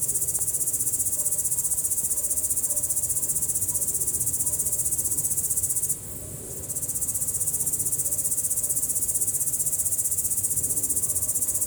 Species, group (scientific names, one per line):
Tettigonia cantans
Orthoptera